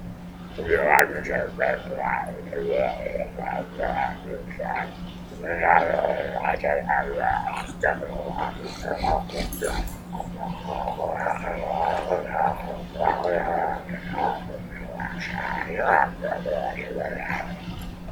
Is there a car?
no